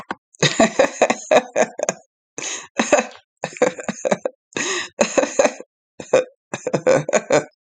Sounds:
Laughter